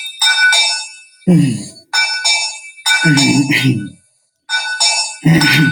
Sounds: Sigh